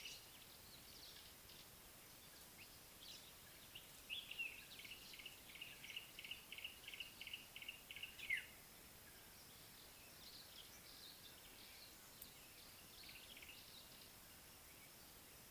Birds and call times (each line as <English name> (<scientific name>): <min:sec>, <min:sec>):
Common Bulbul (Pycnonotus barbatus): 0:04.1
Yellow-breasted Apalis (Apalis flavida): 0:06.6, 0:13.1
African Black-headed Oriole (Oriolus larvatus): 0:08.4